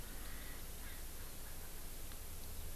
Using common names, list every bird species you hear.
Erckel's Francolin